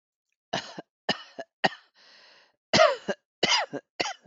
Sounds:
Cough